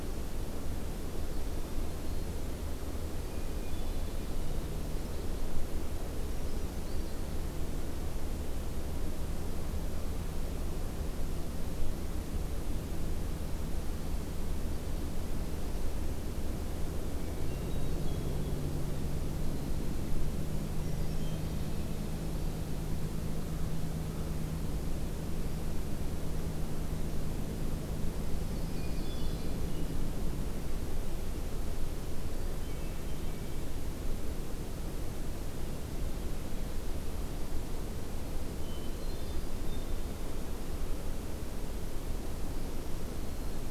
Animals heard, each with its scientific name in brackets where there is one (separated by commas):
Yellow-rumped Warbler (Setophaga coronata), Brown Creeper (Certhia americana), Black-throated Green Warbler (Setophaga virens), Hermit Thrush (Catharus guttatus)